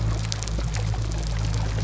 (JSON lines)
{"label": "biophony", "recorder": "SoundTrap 300"}